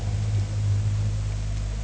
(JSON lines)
{"label": "anthrophony, boat engine", "recorder": "HydroMoth"}